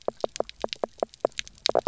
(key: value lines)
label: biophony, knock croak
recorder: SoundTrap 300